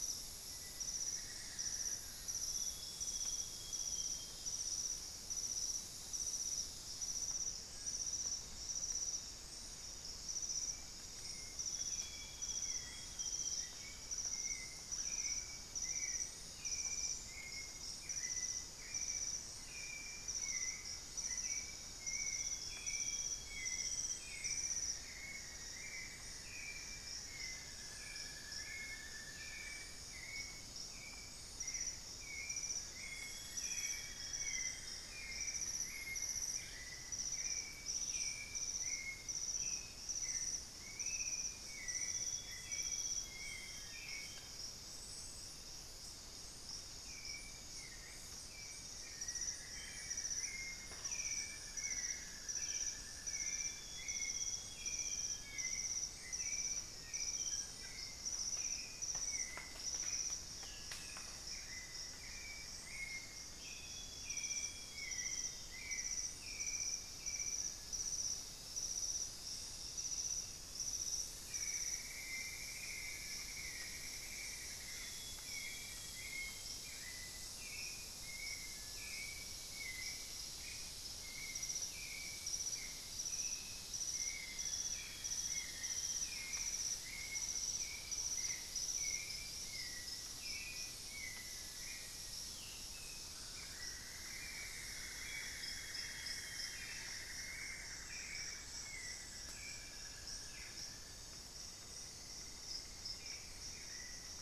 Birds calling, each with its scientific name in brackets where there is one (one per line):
Black-faced Antthrush (Formicarius analis)
Cinereous Tinamou (Crypturellus cinereus)
Grayish Mourner (Rhytipterna simplex)
Scale-breasted Woodpecker (Celeus grammicus)
Amazonian Grosbeak (Cyanoloxia rothschildii)
Buff-throated Woodcreeper (Xiphorhynchus guttatus)
unidentified bird
Spix's Guan (Penelope jacquacu)
Ringed Antpipit (Corythopis torquatus)
White-necked Thrush (Turdus albicollis)
Cinnamon-throated Woodcreeper (Dendrexetastes rufigula)
Amazonian Barred-Woodcreeper (Dendrocolaptes certhia)
Thrush-like Wren (Campylorhynchus turdinus)